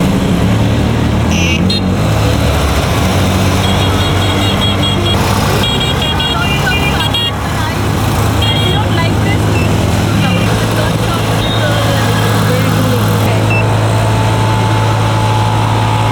Are the people riding a rickshaw motor in traffic?
yes